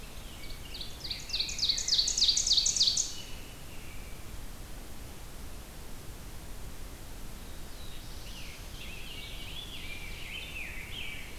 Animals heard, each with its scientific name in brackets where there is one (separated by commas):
Rose-breasted Grosbeak (Pheucticus ludovicianus), Black-throated Blue Warbler (Setophaga caerulescens), American Robin (Turdus migratorius), Ovenbird (Seiurus aurocapilla), Scarlet Tanager (Piranga olivacea)